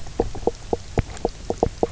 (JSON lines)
{"label": "biophony, knock croak", "recorder": "SoundTrap 300"}